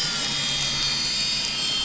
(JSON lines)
{"label": "anthrophony, boat engine", "recorder": "SoundTrap 500"}